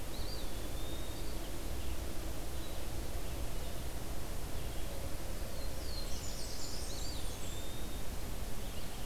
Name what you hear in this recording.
Eastern Wood-Pewee, Red-eyed Vireo, Black-throated Blue Warbler, Blackburnian Warbler